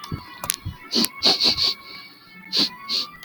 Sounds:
Sniff